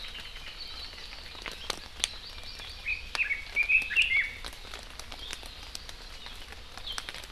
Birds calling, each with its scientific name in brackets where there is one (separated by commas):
Red-billed Leiothrix (Leiothrix lutea), Hawaii Amakihi (Chlorodrepanis virens)